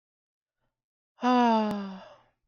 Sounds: Sigh